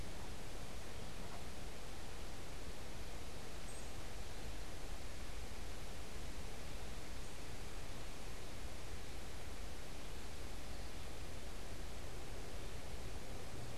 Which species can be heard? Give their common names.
Northern Cardinal